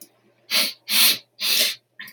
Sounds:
Sniff